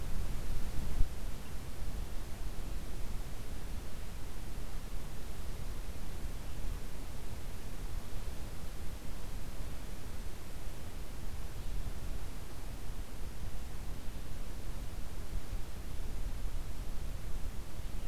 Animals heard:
forest ambience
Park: Katahdin Woods and Waters National Monument